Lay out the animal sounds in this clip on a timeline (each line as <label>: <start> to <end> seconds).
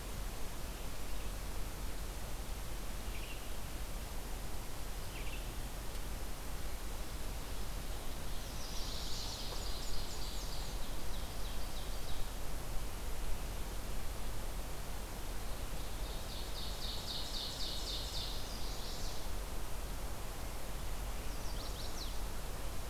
Red-eyed Vireo (Vireo olivaceus): 3.0 to 5.5 seconds
Chestnut-sided Warbler (Setophaga pensylvanica): 8.4 to 9.5 seconds
Ovenbird (Seiurus aurocapilla): 8.6 to 12.3 seconds
Black-and-white Warbler (Mniotilta varia): 9.1 to 10.8 seconds
Ovenbird (Seiurus aurocapilla): 15.7 to 18.6 seconds
Chestnut-sided Warbler (Setophaga pensylvanica): 17.9 to 19.4 seconds
Chestnut-sided Warbler (Setophaga pensylvanica): 21.3 to 22.2 seconds